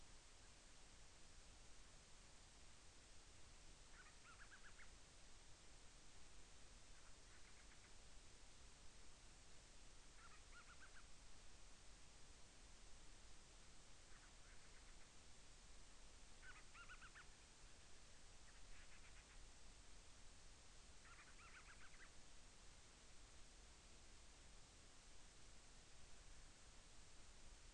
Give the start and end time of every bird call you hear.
3.7s-4.9s: Band-rumped Storm-Petrel (Hydrobates castro)
6.8s-8.0s: Band-rumped Storm-Petrel (Hydrobates castro)
10.0s-11.1s: Band-rumped Storm-Petrel (Hydrobates castro)
14.0s-15.2s: Band-rumped Storm-Petrel (Hydrobates castro)
16.3s-17.3s: Band-rumped Storm-Petrel (Hydrobates castro)
18.3s-19.5s: Band-rumped Storm-Petrel (Hydrobates castro)
20.8s-22.2s: Band-rumped Storm-Petrel (Hydrobates castro)

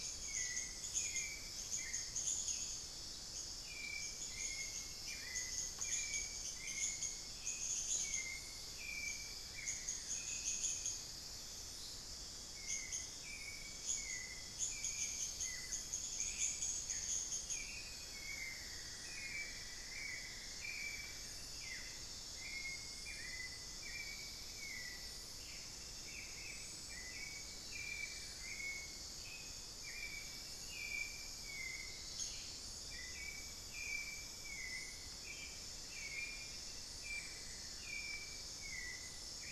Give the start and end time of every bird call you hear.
0.0s-39.5s: Hauxwell's Thrush (Turdus hauxwelli)
0.0s-39.5s: unidentified bird
9.4s-10.3s: Amazonian Barred-Woodcreeper (Dendrocolaptes certhia)
15.4s-16.0s: Buff-throated Woodcreeper (Xiphorhynchus guttatus)
18.1s-21.5s: Cinnamon-throated Woodcreeper (Dendrexetastes rufigula)
27.6s-28.8s: Amazonian Barred-Woodcreeper (Dendrocolaptes certhia)
32.1s-32.7s: Ash-throated Gnateater (Conopophaga peruviana)
37.1s-38.4s: Amazonian Barred-Woodcreeper (Dendrocolaptes certhia)

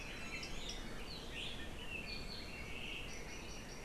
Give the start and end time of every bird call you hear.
0.1s-0.6s: Iiwi (Drepanis coccinea)

